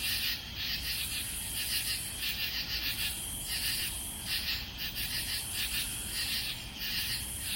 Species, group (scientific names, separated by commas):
Pterophylla camellifolia, Orthoptera